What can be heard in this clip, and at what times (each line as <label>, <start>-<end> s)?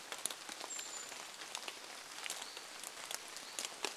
Brown Creeper call, 0-2 s
Hutton's Vireo song, 0-4 s
rain, 0-4 s